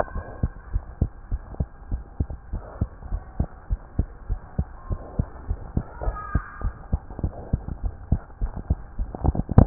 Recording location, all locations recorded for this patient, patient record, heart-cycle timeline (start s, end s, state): tricuspid valve (TV)
aortic valve (AV)+pulmonary valve (PV)+tricuspid valve (TV)+mitral valve (MV)
#Age: Child
#Sex: Male
#Height: 93.0 cm
#Weight: 10.4 kg
#Pregnancy status: False
#Murmur: Absent
#Murmur locations: nan
#Most audible location: nan
#Systolic murmur timing: nan
#Systolic murmur shape: nan
#Systolic murmur grading: nan
#Systolic murmur pitch: nan
#Systolic murmur quality: nan
#Diastolic murmur timing: nan
#Diastolic murmur shape: nan
#Diastolic murmur grading: nan
#Diastolic murmur pitch: nan
#Diastolic murmur quality: nan
#Outcome: Normal
#Campaign: 2015 screening campaign
0.00	0.12	unannotated
0.12	0.24	S1
0.24	0.40	systole
0.40	0.52	S2
0.52	0.72	diastole
0.72	0.84	S1
0.84	0.99	systole
0.99	1.12	S2
1.12	1.30	diastole
1.30	1.42	S1
1.42	1.58	systole
1.58	1.68	S2
1.68	1.90	diastole
1.90	2.04	S1
2.04	2.19	systole
2.19	2.30	S2
2.30	2.51	diastole
2.51	2.64	S1
2.64	2.79	systole
2.79	2.90	S2
2.90	3.10	diastole
3.10	3.22	S1
3.22	3.36	systole
3.36	3.48	S2
3.48	3.68	diastole
3.68	3.80	S1
3.80	3.98	systole
3.98	4.10	S2
4.10	4.28	diastole
4.28	4.40	S1
4.40	4.58	systole
4.58	4.68	S2
4.68	4.88	diastole
4.88	5.00	S1
5.00	5.18	systole
5.18	5.28	S2
5.28	5.48	diastole
5.48	5.62	S1
5.62	5.76	systole
5.76	5.86	S2
5.86	6.02	diastole
6.02	6.18	S1
6.18	6.32	systole
6.32	6.44	S2
6.44	6.62	diastole
6.62	6.74	S1
6.74	6.90	systole
6.90	7.04	S2
7.04	7.22	diastole
7.22	7.32	S1
7.32	7.52	systole
7.52	7.64	S2
7.64	7.82	diastole
7.82	7.94	S1
7.94	8.08	systole
8.08	8.20	S2
8.20	8.39	diastole
8.39	8.54	S1
8.54	8.68	systole
8.68	8.82	S2
8.82	8.98	diastole
8.98	9.10	S1
9.10	9.22	systole
9.22	9.36	S2
9.36	9.66	unannotated